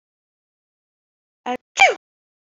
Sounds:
Sneeze